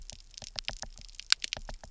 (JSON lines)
{"label": "biophony, knock", "recorder": "SoundTrap 300"}